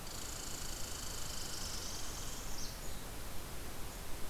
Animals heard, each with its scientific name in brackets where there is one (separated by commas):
Red Squirrel (Tamiasciurus hudsonicus), Northern Parula (Setophaga americana)